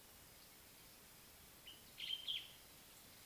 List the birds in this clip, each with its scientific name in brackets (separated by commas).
Common Bulbul (Pycnonotus barbatus)